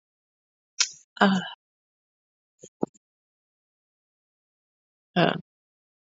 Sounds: Sigh